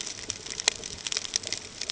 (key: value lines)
label: ambient
recorder: HydroMoth